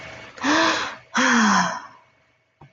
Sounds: Sigh